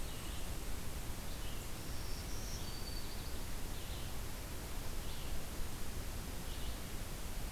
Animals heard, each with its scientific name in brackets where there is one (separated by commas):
Red-eyed Vireo (Vireo olivaceus), Black-throated Green Warbler (Setophaga virens)